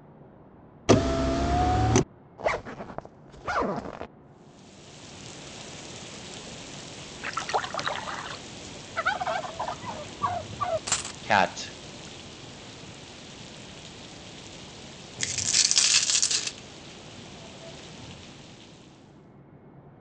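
From 4.17 to 19.47 seconds, quiet rain fades in, falls, and fades out. At 0.88 seconds, there is the sound of a car. Then, at 2.38 seconds, you can hear a zipper. After that, at 7.22 seconds, a splash is heard. Later, at 8.94 seconds, you can hear a bird. Next, at 10.85 seconds, a coin drops. At 11.29 seconds, someone says "cat". At 15.19 seconds, the sound of a coin dropping is heard. An even noise persists about 25 decibels below the sounds.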